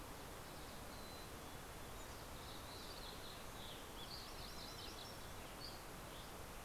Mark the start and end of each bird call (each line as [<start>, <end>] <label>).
[0.70, 2.80] Mountain Chickadee (Poecile gambeli)
[3.00, 4.60] Western Tanager (Piranga ludoviciana)
[3.80, 5.50] MacGillivray's Warbler (Geothlypis tolmiei)
[4.30, 5.60] Mountain Chickadee (Poecile gambeli)
[5.40, 6.60] Dusky Flycatcher (Empidonax oberholseri)